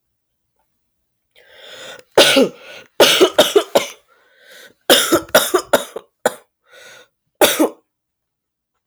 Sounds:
Cough